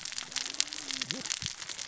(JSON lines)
{"label": "biophony, cascading saw", "recorder": "SoundTrap 600 or HydroMoth"}